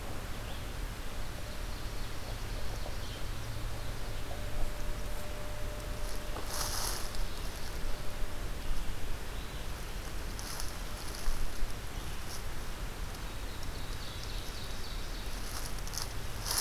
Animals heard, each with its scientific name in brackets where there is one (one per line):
Ovenbird (Seiurus aurocapilla)